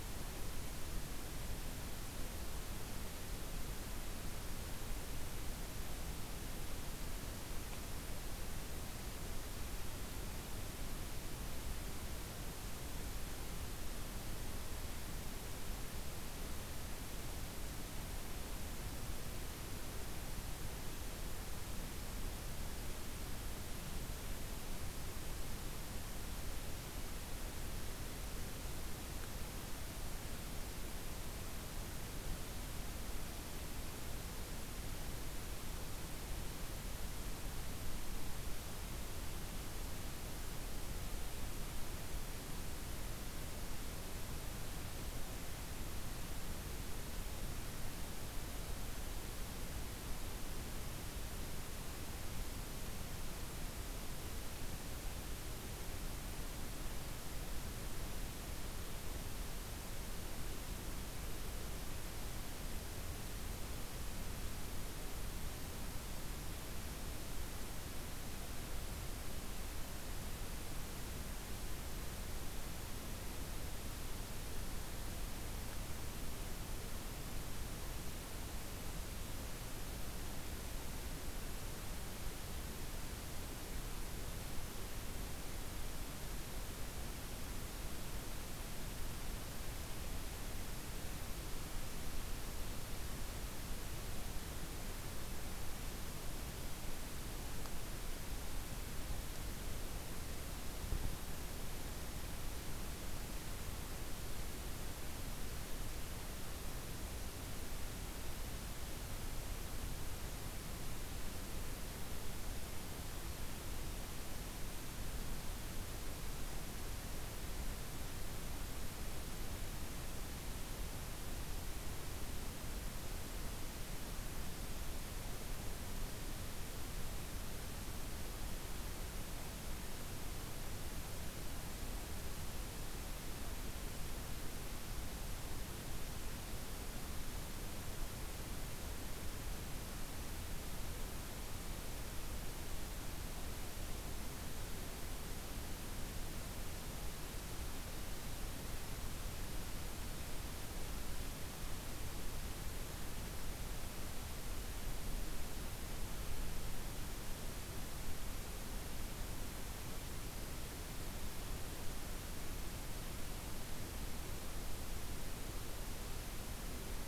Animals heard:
forest ambience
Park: Katahdin Woods and Waters National Monument